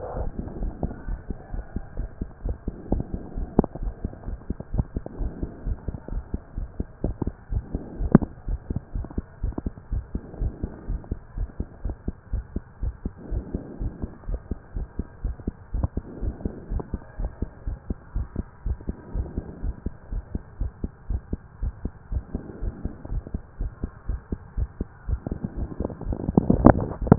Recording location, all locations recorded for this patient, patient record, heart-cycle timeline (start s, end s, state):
pulmonary valve (PV)
aortic valve (AV)+pulmonary valve (PV)+tricuspid valve (TV)+mitral valve (MV)
#Age: Child
#Sex: Male
#Height: 163.0 cm
#Weight: 84.5 kg
#Pregnancy status: False
#Murmur: Absent
#Murmur locations: nan
#Most audible location: nan
#Systolic murmur timing: nan
#Systolic murmur shape: nan
#Systolic murmur grading: nan
#Systolic murmur pitch: nan
#Systolic murmur quality: nan
#Diastolic murmur timing: nan
#Diastolic murmur shape: nan
#Diastolic murmur grading: nan
#Diastolic murmur pitch: nan
#Diastolic murmur quality: nan
#Outcome: Abnormal
#Campaign: 2015 screening campaign
0.00	11.83	unannotated
11.83	11.94	S1
11.94	12.06	systole
12.06	12.16	S2
12.16	12.32	diastole
12.32	12.46	S1
12.46	12.54	systole
12.54	12.64	S2
12.64	12.82	diastole
12.82	12.96	S1
12.96	13.04	systole
13.04	13.14	S2
13.14	13.30	diastole
13.30	13.46	S1
13.46	13.52	systole
13.52	13.64	S2
13.64	13.80	diastole
13.80	13.94	S1
13.94	14.02	systole
14.02	14.12	S2
14.12	14.28	diastole
14.28	14.42	S1
14.42	14.50	systole
14.50	14.60	S2
14.60	14.76	diastole
14.76	14.90	S1
14.90	14.98	systole
14.98	15.08	S2
15.08	15.24	diastole
15.24	15.38	S1
15.38	15.46	systole
15.46	15.56	S2
15.56	15.74	diastole
15.74	15.90	S1
15.90	15.96	systole
15.96	16.06	S2
16.06	16.22	diastole
16.22	16.36	S1
16.36	16.44	systole
16.44	16.54	S2
16.54	16.70	diastole
16.70	16.82	S1
16.82	16.92	systole
16.92	17.02	S2
17.02	17.18	diastole
17.18	17.32	S1
17.32	17.40	systole
17.40	17.48	S2
17.48	17.66	diastole
17.66	17.78	S1
17.78	17.86	systole
17.86	18.00	S2
18.00	18.16	diastole
18.16	18.30	S1
18.30	18.38	systole
18.38	18.48	S2
18.48	18.66	diastole
18.66	18.80	S1
18.80	18.84	systole
18.84	18.98	S2
18.98	19.14	diastole
19.14	19.28	S1
19.28	19.36	systole
19.36	19.46	S2
19.46	19.64	diastole
19.64	19.78	S1
19.78	19.82	systole
19.82	19.96	S2
19.96	20.12	diastole
20.12	20.24	S1
20.24	20.34	systole
20.34	20.44	S2
20.44	20.60	diastole
20.60	20.72	S1
20.72	20.82	systole
20.82	20.92	S2
20.92	21.09	diastole
21.09	21.24	S1
21.24	21.31	systole
21.31	21.42	S2
21.42	21.62	diastole
21.62	21.76	S1
21.76	21.84	systole
21.84	21.94	S2
21.94	22.12	diastole
22.12	22.26	S1
22.26	22.30	systole
22.30	22.44	S2
22.44	22.62	diastole
22.62	22.76	S1
22.76	22.84	systole
22.84	22.94	S2
22.94	23.12	diastole
23.12	23.26	S1
23.26	23.30	systole
23.30	23.44	S2
23.44	23.60	diastole
23.60	23.74	S1
23.74	23.82	systole
23.82	23.90	S2
23.90	24.07	diastole
24.07	24.19	S1
24.19	24.28	systole
24.28	24.38	S2
24.38	27.18	unannotated